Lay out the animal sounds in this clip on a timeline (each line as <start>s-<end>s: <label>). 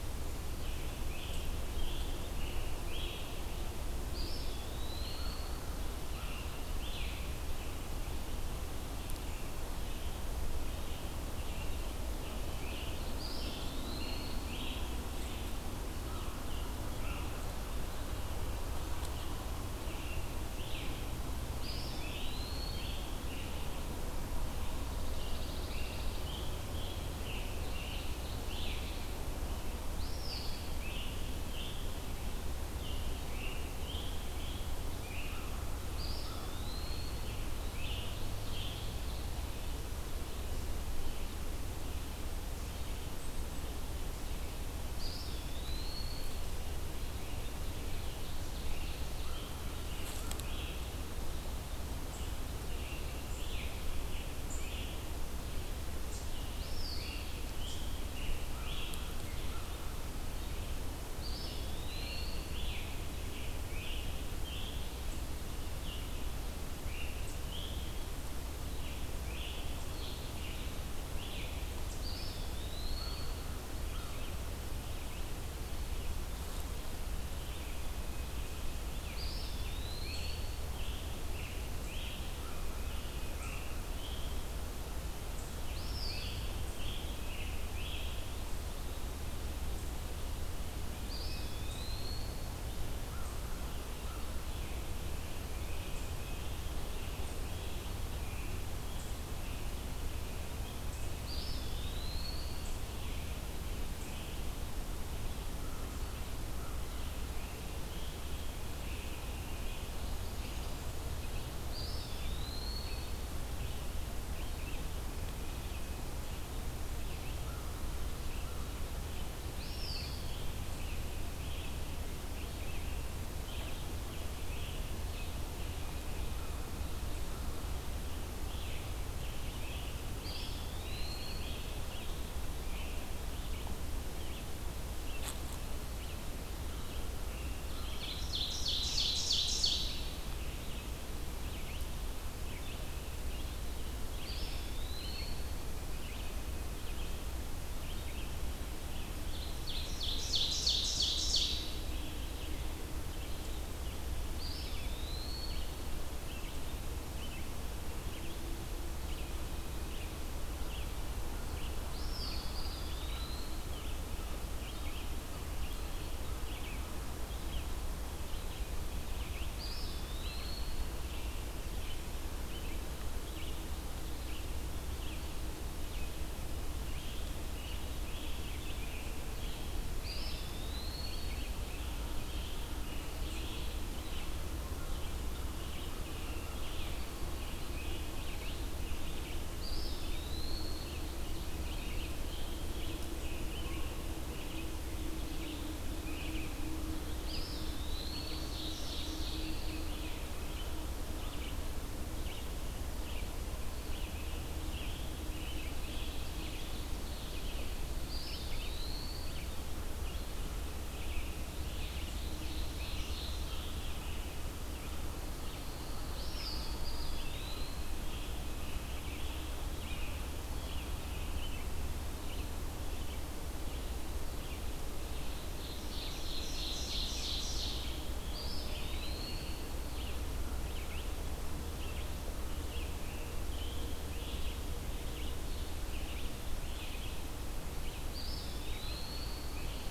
0.0s-239.9s: Red-eyed Vireo (Vireo olivaceus)
1.1s-3.3s: Scarlet Tanager (Piranga olivacea)
4.1s-5.5s: Eastern Wood-Pewee (Contopus virens)
5.1s-6.4s: American Crow (Corvus brachyrhynchos)
13.0s-14.7s: Eastern Wood-Pewee (Contopus virens)
16.0s-17.3s: American Crow (Corvus brachyrhynchos)
21.6s-22.9s: Eastern Wood-Pewee (Contopus virens)
24.7s-26.3s: Pine Warbler (Setophaga pinus)
26.1s-28.8s: Scarlet Tanager (Piranga olivacea)
30.0s-30.8s: Eastern Wood-Pewee (Contopus virens)
30.6s-32.0s: Scarlet Tanager (Piranga olivacea)
32.6s-35.5s: Scarlet Tanager (Piranga olivacea)
35.3s-36.6s: American Crow (Corvus brachyrhynchos)
35.9s-37.5s: Eastern Wood-Pewee (Contopus virens)
37.2s-38.9s: Scarlet Tanager (Piranga olivacea)
44.8s-46.5s: Eastern Wood-Pewee (Contopus virens)
47.5s-50.8s: Ovenbird (Seiurus aurocapilla)
48.6s-51.6s: American Crow (Corvus brachyrhynchos)
51.8s-57.9s: Black-capped Chickadee (Poecile atricapillus)
52.7s-55.0s: Scarlet Tanager (Piranga olivacea)
56.6s-57.3s: Eastern Wood-Pewee (Contopus virens)
56.7s-59.1s: Scarlet Tanager (Piranga olivacea)
61.2s-62.4s: Eastern Wood-Pewee (Contopus virens)
61.8s-64.9s: Scarlet Tanager (Piranga olivacea)
67.0s-67.6s: Black-capped Chickadee (Poecile atricapillus)
72.0s-73.6s: Eastern Wood-Pewee (Contopus virens)
78.9s-82.2s: Scarlet Tanager (Piranga olivacea)
79.1s-80.6s: Eastern Wood-Pewee (Contopus virens)
85.6s-88.1s: Scarlet Tanager (Piranga olivacea)
85.6s-86.5s: Eastern Wood-Pewee (Contopus virens)
91.0s-92.5s: Eastern Wood-Pewee (Contopus virens)
101.2s-102.7s: Eastern Wood-Pewee (Contopus virens)
111.6s-113.2s: Eastern Wood-Pewee (Contopus virens)
130.2s-131.7s: Eastern Wood-Pewee (Contopus virens)
137.6s-140.4s: Ovenbird (Seiurus aurocapilla)
144.2s-145.5s: Eastern Wood-Pewee (Contopus virens)
149.2s-152.1s: Ovenbird (Seiurus aurocapilla)
154.3s-155.7s: Eastern Wood-Pewee (Contopus virens)
161.8s-163.8s: Eastern Wood-Pewee (Contopus virens)
169.4s-170.9s: Eastern Wood-Pewee (Contopus virens)
180.0s-181.3s: Eastern Wood-Pewee (Contopus virens)
189.5s-190.9s: Eastern Wood-Pewee (Contopus virens)
190.3s-192.6s: Ovenbird (Seiurus aurocapilla)
197.2s-198.5s: Eastern Wood-Pewee (Contopus virens)
198.2s-199.9s: Ovenbird (Seiurus aurocapilla)
198.3s-200.0s: Pine Warbler (Setophaga pinus)
205.4s-207.8s: Ovenbird (Seiurus aurocapilla)
207.8s-209.6s: Pine Warbler (Setophaga pinus)
208.0s-209.4s: Eastern Wood-Pewee (Contopus virens)
211.4s-214.0s: Ovenbird (Seiurus aurocapilla)
215.0s-217.0s: Pine Warbler (Setophaga pinus)
216.1s-217.8s: Eastern Wood-Pewee (Contopus virens)
225.5s-228.1s: Ovenbird (Seiurus aurocapilla)
228.3s-229.7s: Eastern Wood-Pewee (Contopus virens)
238.1s-239.8s: Eastern Wood-Pewee (Contopus virens)